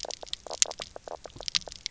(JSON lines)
{"label": "biophony, knock croak", "recorder": "SoundTrap 300"}